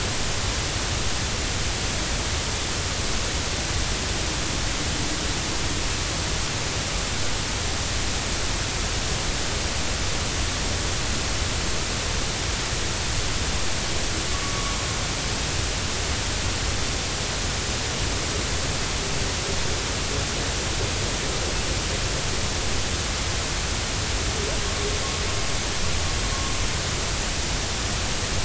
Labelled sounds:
14.4	14.8	humpback whale, 1.1 to 1.2 kHz

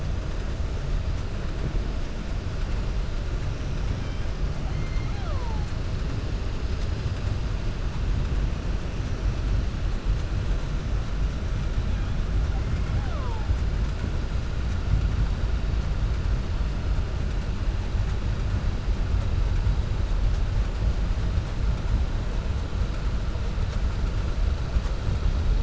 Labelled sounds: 4.6	5.6	killer whale, 0.48 to 4.2 kHz

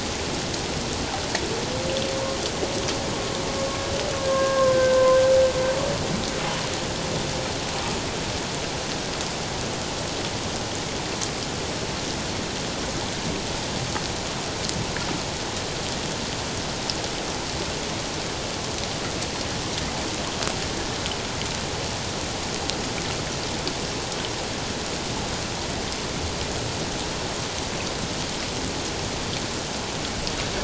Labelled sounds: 4.2	5.2	humpback whale, 0.97 to 1.7 kHz

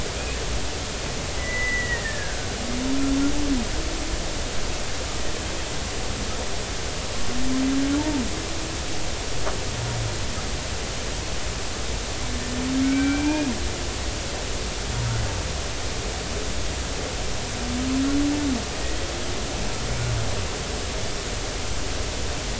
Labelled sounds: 0.2	0.4	killer whale, Bigg's (transient), 2.4 to 2.7 kHz
1.4	2.5	killer whale, Bigg's (transient), 1.5 to 2.0 kHz
12.8	13.5	killer whale, Bigg's (transient), 1.5 to 2.6 kHz

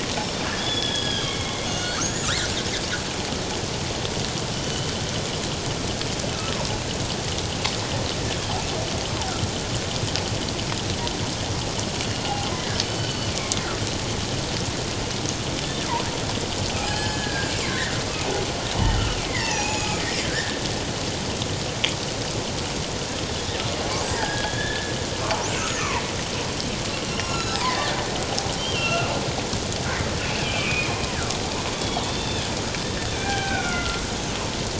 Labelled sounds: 0.6	2.6	killer whale, northern resident, G clan, 1.2 to 6.9 kHz
4.5	4.9	killer whale, northern resident, G clan, 2.9 to 3.1 kHz
12.5	13.3	killer whale, northern resident, G clan, 1.9 to 4.6 kHz
16.9	18.0	killer whale, northern resident, G clan, 1.0 to 4.3 kHz
18.7	20.6	killer whale, northern resident, G clan, 0.78 to 7.0 kHz
24.0	24.9	killer whale, northern resident, G clan, 1.4 to 5.0 kHz
25.6	25.9	killer whale, northern resident, G clan, 5.9 to 6.9 kHz
27.0	27.9	killer whale, northern resident, G clan, 1.3 to 8.0 kHz
28.6	29.1	killer whale, northern resident, G clan, 1.2 to 3.3 kHz
30.2	30.9	killer whale, northern resident, G clan, 2.1 to 2.8 kHz
31.7	32.5	killer whale, northern resident, G clan, 2.5 to 3.7 kHz
33.1	34.0	killer whale, northern resident, G clan, 0.78 to 2.5 kHz

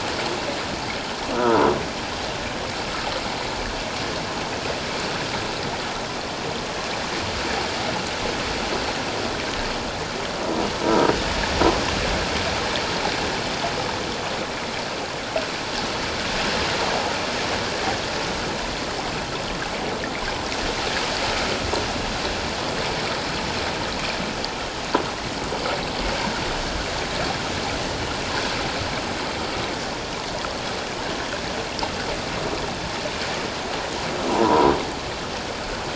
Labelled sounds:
10.8	11.1	croaking sound likely from a nearby submerged object, 0.91 to 1.0 kHz
34.3	34.7	croaking sound likely from a nearby submerged object, 0.88 to 1.1 kHz

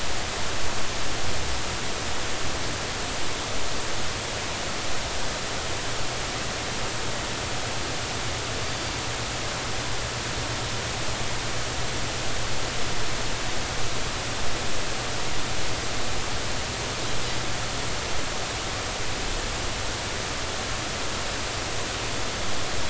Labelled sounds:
8.6	8.9	Pacific white-sided dolphin, 4.5 to 4.8 kHz

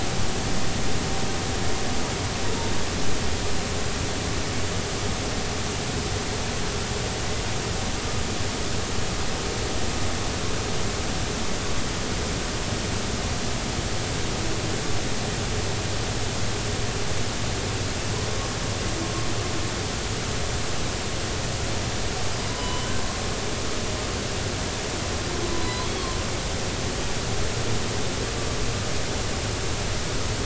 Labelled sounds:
22.5	22.9	humpback whale, 0.96 to 3.1 kHz
25.5	25.9	humpback whale, 0.93 to 4.1 kHz

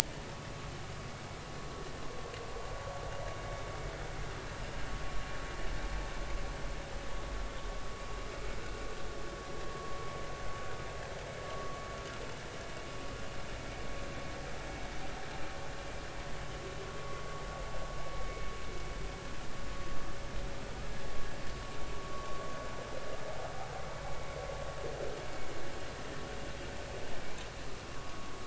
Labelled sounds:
18.2	18.5	vessel noise, 2.1 to 2.3 kHz
27.9	28.3	vessel noise, 1.1 to 1.4 kHz

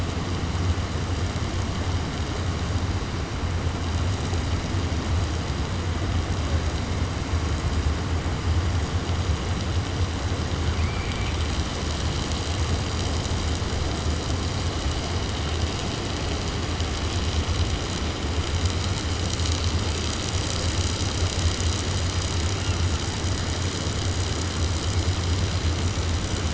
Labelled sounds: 10.7	11.5	killer whale, 1.4 to 3.5 kHz

